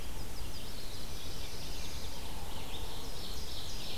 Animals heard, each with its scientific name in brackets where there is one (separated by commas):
Ovenbird (Seiurus aurocapilla), Black-throated Blue Warbler (Setophaga caerulescens), Veery (Catharus fuscescens), Red-eyed Vireo (Vireo olivaceus), Chestnut-sided Warbler (Setophaga pensylvanica)